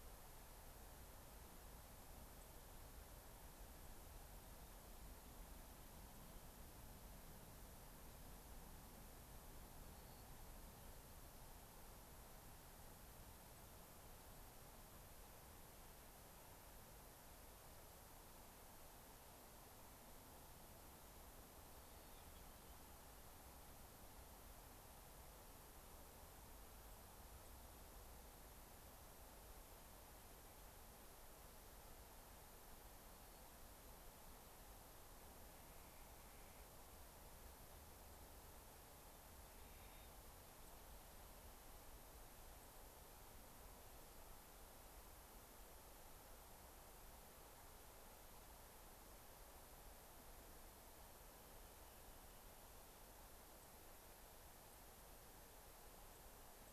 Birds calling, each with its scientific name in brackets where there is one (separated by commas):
Clark's Nutcracker (Nucifraga columbiana), White-crowned Sparrow (Zonotrichia leucophrys)